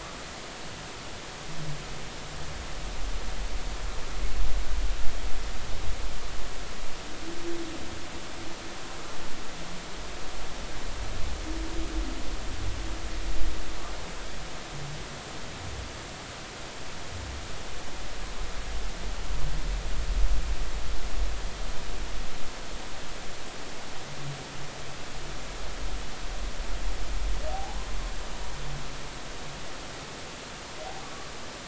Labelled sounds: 27.5	27.8	humpback whale, 0.80 to 0.96 kHz

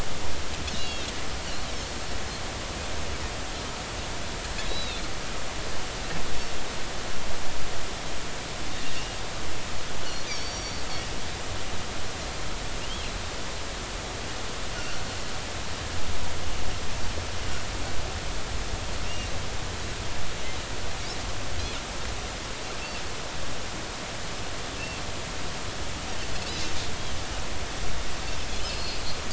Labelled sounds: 0.8	1.1	Pacific white-sided dolphin, 2.6 to 3.4 kHz
4.6	5.0	Pacific white-sided dolphin, 3.5 to 4.1 kHz
10.3	10.9	Pacific white-sided dolphin, 4.3 to 6.9 kHz
14.8	15.0	Pacific white-sided dolphin, 1.3 to 1.6 kHz
19.0	19.3	Pacific white-sided dolphin, 2.7 to 2.9 kHz
28.7	29.0	Pacific white-sided dolphin, 4.2 to 4.5 kHz

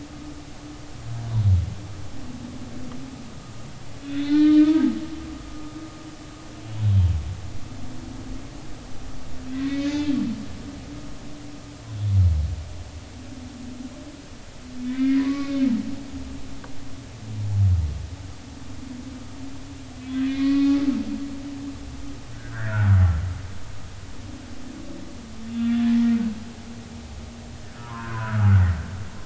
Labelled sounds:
4.0	4.8	humpback whale, 1.4 to 4.3 kHz
9.5	10.1	humpback whale, 1.8 to 3.6 kHz
14.8	15.7	humpback whale, 0.96 to 2.5 kHz
20.2	20.8	humpback whale, 1.1 to 2.6 kHz
22.3	23.0	humpback whale, 1.2 to 2.0 kHz
25.4	26.0	humpback whale, 1.6 to 3.6 kHz
27.7	28.5	humpback whale, 0.90 to 1.7 kHz

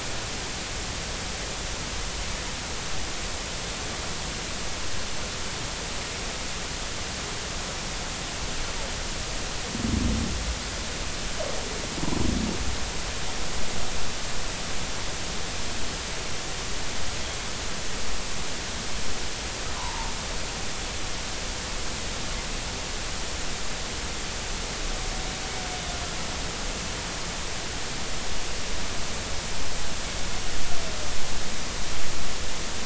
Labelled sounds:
19.8	20.1	humpback whale, 0.80 to 1.2 kHz

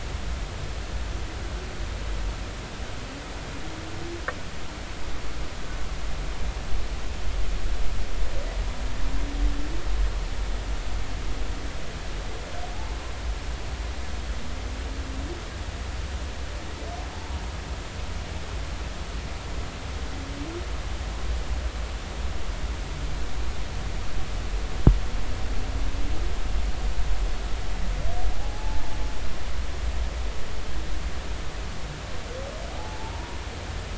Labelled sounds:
28.3	28.8	humpback whale, 0.80 to 0.93 kHz
32.7	33.4	humpback whale, 0.80 to 0.99 kHz

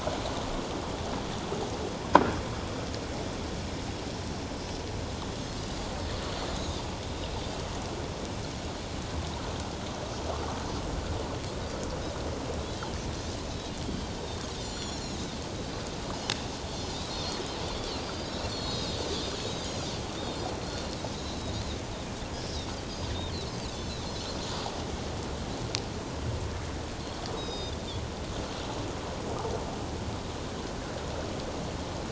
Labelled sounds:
5.6	5.9	Pacific white-sided dolphin, 4.7 to 4.9 kHz
6.6	6.8	Pacific white-sided dolphin, 6.1 to 6.6 kHz
14.2	15.4	Pacific white-sided dolphin, 3.5 to 7.3 kHz
16.9	19.0	Pacific white-sided dolphin, 3.2 to 5.2 kHz
19.5	20.4	Pacific white-sided dolphin, 3.5 to 5.0 kHz
21.2	21.5	Pacific white-sided dolphin, 3.7 to 4.2 kHz
23.7	24.1	Pacific white-sided dolphin, 3.8 to 4.5 kHz
27.4	27.8	Pacific white-sided dolphin, 3.4 to 6.4 kHz

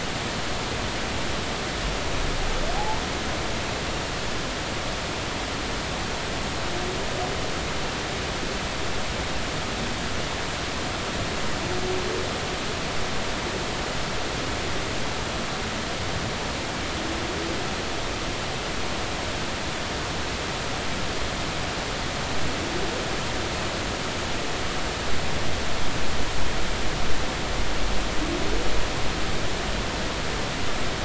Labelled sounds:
2.8	3.0	humpback whale, 0.80 to 0.99 kHz

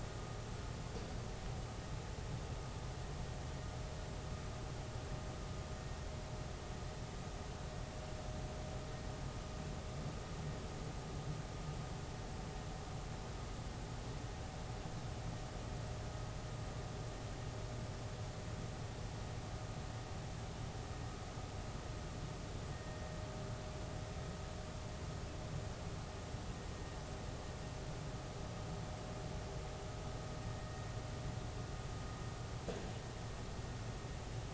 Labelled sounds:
22.7	23.0	vessel noise, 1.8 to 1.9 kHz
30.6	30.8	vessel noise, 1.8 to 2.0 kHz

